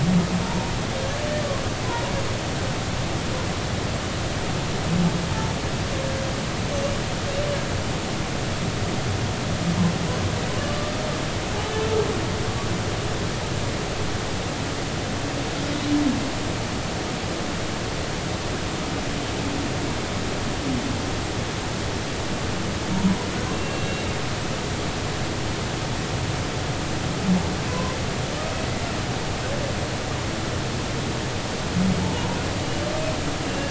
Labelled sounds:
0.4	0.7	humpback whale, 0.86 to 0.99 kHz
23.5	24.1	humpback whale, 2.7 to 3.9 kHz
27.7	28.0	humpback whale, 0.96 to 1.1 kHz
33.0	33.7	humpback whale, 0.83 to 2.8 kHz

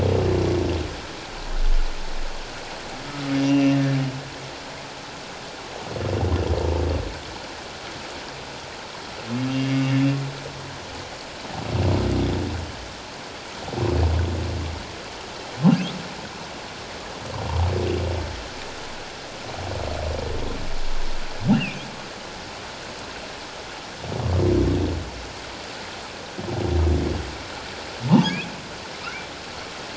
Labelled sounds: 3.3	3.8	humpback whale, 2.6 to 5.0 kHz
9.5	9.7	humpback whale, 2.6 to 2.8 kHz
21.5	21.9	humpback whale, 2.3 to 2.9 kHz
28.1	28.5	humpback whale, 0.81 to 3.5 kHz

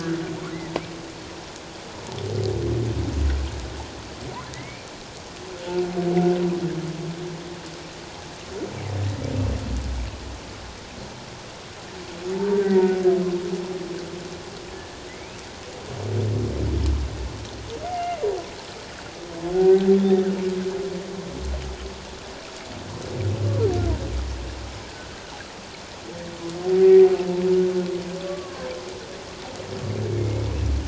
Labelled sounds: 4.5	4.9	humpback whale, 1.9 to 2.5 kHz
12.3	13.0	humpback whale, 0.84 to 2.0 kHz
14.7	15.4	humpback whale, 1.7 to 2.7 kHz
17.8	18.2	humpback whale, 1.9 to 2.2 kHz
19.5	19.9	humpback whale, 0.78 to 1.7 kHz
24.9	25.2	humpback whale, 1.4 to 1.7 kHz
28.3	28.7	humpback whale, 1.0 to 1.2 kHz
30.1	30.4	humpback whale, 2.1 to 2.3 kHz

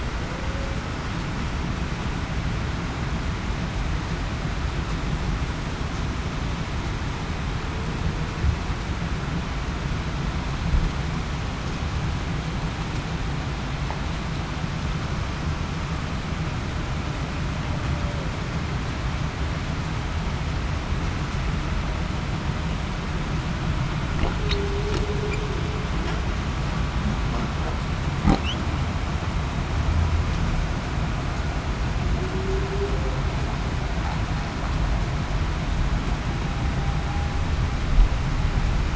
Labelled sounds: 0.3	0.7	humpback whale, 0.49 to 0.56 kHz
24.4	25.0	humpback whale, 0.35 to 0.45 kHz
32.3	32.7	humpback whale, 0.35 to 0.42 kHz

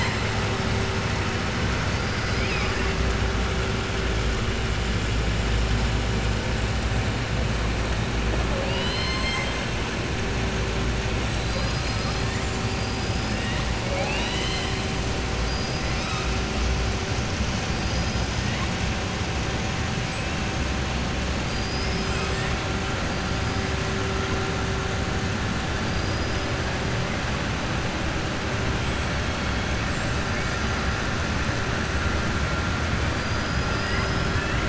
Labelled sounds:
1.9	2.9	killer whale, southern resident, 1.1 to 5.1 kHz
8.4	9.6	killer whale, southern resident, 0.55 to 7.9 kHz
11.3	12.2	killer whale, southern resident, 3.8 to 6.0 kHz
15.4	16.3	killer whale, southern resident, 3.6 to 6.2 kHz
25.8	26.5	killer whale, southern resident, 4.7 to 5.8 kHz

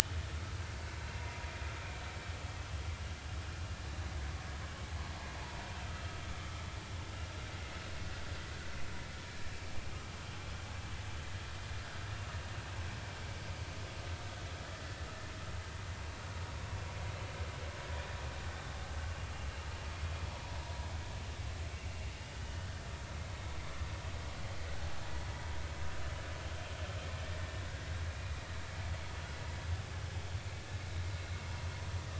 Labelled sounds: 14.7	15.0	vessel noise, 1.7 to 2.0 kHz

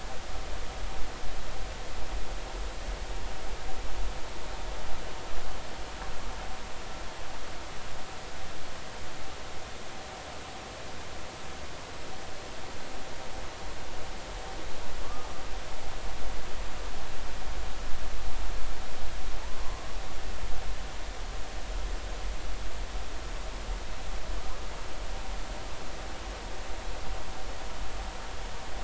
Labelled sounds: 15.0	15.3	humpback whale, 1.1 to 1.3 kHz

